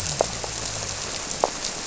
{"label": "biophony", "recorder": "SoundTrap 300"}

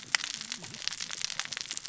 {"label": "biophony, cascading saw", "recorder": "SoundTrap 600 or HydroMoth"}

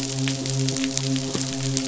{"label": "biophony, midshipman", "recorder": "SoundTrap 500"}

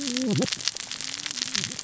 {"label": "biophony, cascading saw", "recorder": "SoundTrap 600 or HydroMoth"}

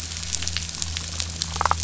{"label": "biophony, damselfish", "recorder": "SoundTrap 500"}
{"label": "anthrophony, boat engine", "recorder": "SoundTrap 500"}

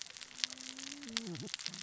{"label": "biophony, cascading saw", "recorder": "SoundTrap 600 or HydroMoth"}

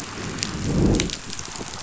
{"label": "biophony, growl", "recorder": "SoundTrap 500"}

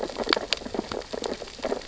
{"label": "biophony, sea urchins (Echinidae)", "recorder": "SoundTrap 600 or HydroMoth"}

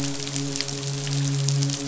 {"label": "biophony, midshipman", "recorder": "SoundTrap 500"}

